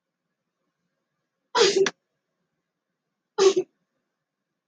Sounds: Sneeze